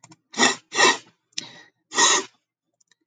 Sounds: Sniff